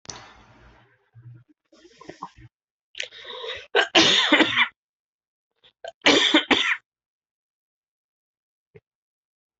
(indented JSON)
{
  "expert_labels": [
    {
      "quality": "ok",
      "cough_type": "dry",
      "dyspnea": false,
      "wheezing": true,
      "stridor": false,
      "choking": false,
      "congestion": false,
      "nothing": false,
      "diagnosis": "COVID-19",
      "severity": "mild"
    }
  ],
  "age": 40,
  "gender": "male",
  "respiratory_condition": false,
  "fever_muscle_pain": false,
  "status": "COVID-19"
}